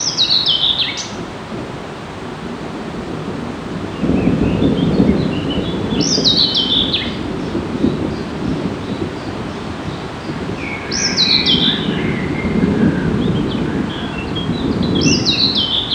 Is there only one bird singing?
no